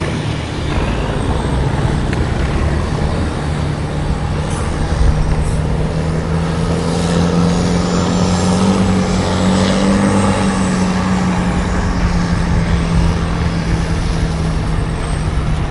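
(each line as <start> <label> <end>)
0.0 A motorboat engine roars repeatedly. 15.7
0.0 Busy city traffic is heard in the distance. 15.7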